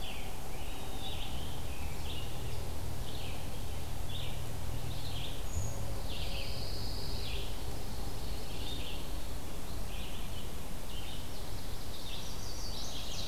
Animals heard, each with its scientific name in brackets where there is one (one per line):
Chestnut-sided Warbler (Setophaga pensylvanica)
Red-eyed Vireo (Vireo olivaceus)
Pine Warbler (Setophaga pinus)
Brown Creeper (Certhia americana)
Ovenbird (Seiurus aurocapilla)